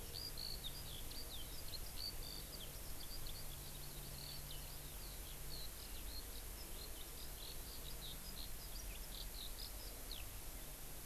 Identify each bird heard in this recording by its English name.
Eurasian Skylark